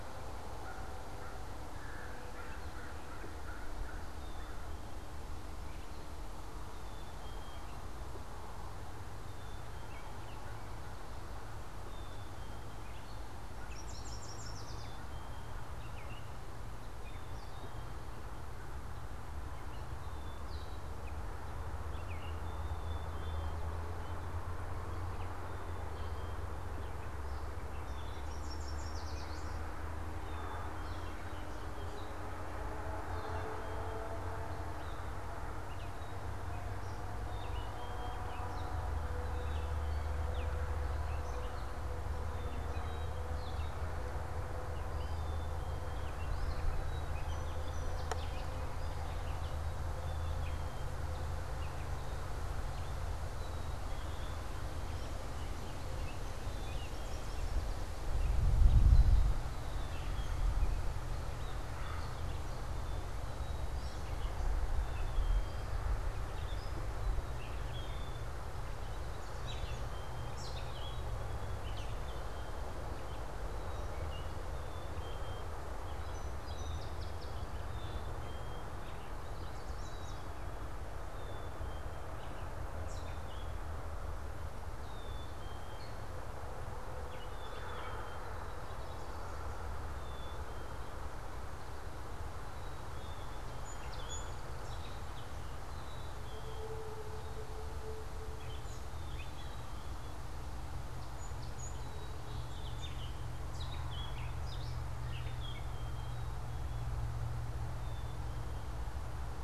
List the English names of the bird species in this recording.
American Crow, Black-capped Chickadee, Yellow Warbler, Gray Catbird, Song Sparrow